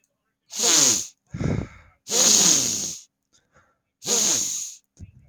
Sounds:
Sniff